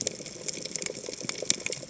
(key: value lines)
label: biophony, chatter
recorder: HydroMoth